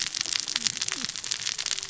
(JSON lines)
{"label": "biophony, cascading saw", "recorder": "SoundTrap 600 or HydroMoth"}